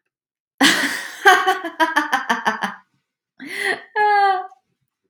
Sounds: Laughter